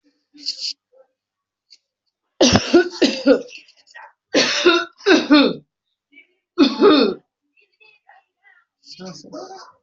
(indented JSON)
{
  "expert_labels": [
    {
      "quality": "ok",
      "cough_type": "dry",
      "dyspnea": false,
      "wheezing": false,
      "stridor": false,
      "choking": false,
      "congestion": false,
      "nothing": true,
      "diagnosis": "obstructive lung disease",
      "severity": "mild"
    }
  ],
  "age": 34,
  "gender": "female",
  "respiratory_condition": false,
  "fever_muscle_pain": false,
  "status": "symptomatic"
}